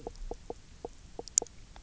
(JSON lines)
{"label": "biophony, knock croak", "recorder": "SoundTrap 300"}